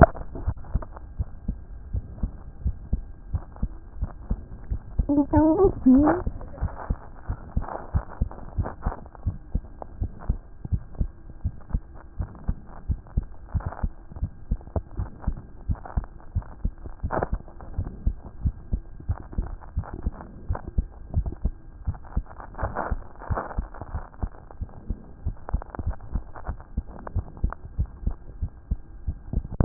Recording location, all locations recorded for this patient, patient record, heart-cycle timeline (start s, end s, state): aortic valve (AV)
aortic valve (AV)+pulmonary valve (PV)+tricuspid valve (TV)+mitral valve (MV)
#Age: Child
#Sex: Male
#Height: 117.0 cm
#Weight: 21.7 kg
#Pregnancy status: False
#Murmur: Absent
#Murmur locations: nan
#Most audible location: nan
#Systolic murmur timing: nan
#Systolic murmur shape: nan
#Systolic murmur grading: nan
#Systolic murmur pitch: nan
#Systolic murmur quality: nan
#Diastolic murmur timing: nan
#Diastolic murmur shape: nan
#Diastolic murmur grading: nan
#Diastolic murmur pitch: nan
#Diastolic murmur quality: nan
#Outcome: Normal
#Campaign: 2014 screening campaign
0.00	0.34	unannotated
0.34	0.44	diastole
0.44	0.56	S1
0.56	0.72	systole
0.72	0.84	S2
0.84	1.18	diastole
1.18	1.28	S1
1.28	1.46	systole
1.46	1.56	S2
1.56	1.92	diastole
1.92	2.04	S1
2.04	2.22	systole
2.22	2.30	S2
2.30	2.64	diastole
2.64	2.76	S1
2.76	2.92	systole
2.92	3.02	S2
3.02	3.32	diastole
3.32	3.42	S1
3.42	3.60	systole
3.60	3.70	S2
3.70	4.00	diastole
4.00	4.10	S1
4.10	4.28	systole
4.28	4.40	S2
4.40	4.70	diastole
4.70	29.65	unannotated